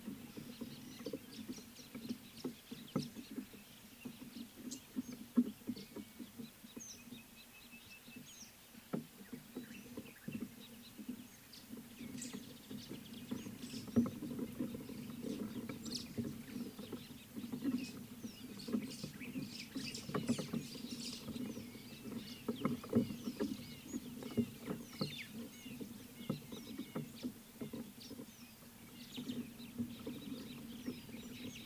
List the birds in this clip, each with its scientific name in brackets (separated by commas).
White-browed Sparrow-Weaver (Plocepasser mahali), Red-fronted Barbet (Tricholaema diademata), Rüppell's Starling (Lamprotornis purpuroptera), Scarlet-chested Sunbird (Chalcomitra senegalensis), Sulphur-breasted Bushshrike (Telophorus sulfureopectus)